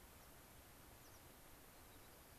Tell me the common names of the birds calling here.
American Pipit, White-crowned Sparrow